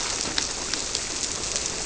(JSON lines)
{"label": "biophony", "recorder": "SoundTrap 300"}